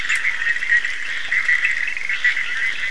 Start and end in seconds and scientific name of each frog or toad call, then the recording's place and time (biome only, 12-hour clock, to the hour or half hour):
0.0	2.9	Boana bischoffi
0.0	2.9	Sphaenorhynchus surdus
1.9	2.5	Scinax perereca
Atlantic Forest, ~1am